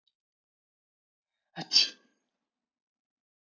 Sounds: Sneeze